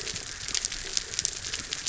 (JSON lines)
{"label": "biophony", "recorder": "SoundTrap 300"}